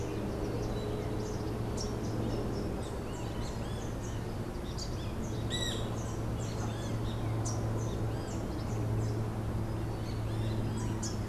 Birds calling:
Rufous-capped Warbler (Basileuterus rufifrons), Great Kiskadee (Pitangus sulphuratus)

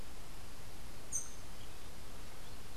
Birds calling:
Rufous-tailed Hummingbird (Amazilia tzacatl)

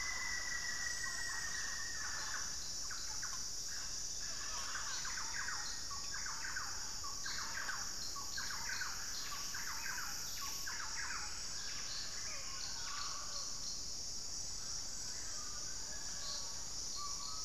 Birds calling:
Thrush-like Wren (Campylorhynchus turdinus), Buff-breasted Wren (Cantorchilus leucotis), Mealy Parrot (Amazona farinosa), Rufous-fronted Antthrush (Formicarius rufifrons)

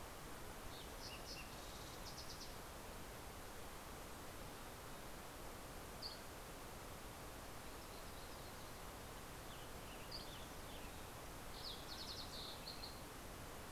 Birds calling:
Fox Sparrow (Passerella iliaca), Dusky Flycatcher (Empidonax oberholseri), Yellow-rumped Warbler (Setophaga coronata), Western Tanager (Piranga ludoviciana)

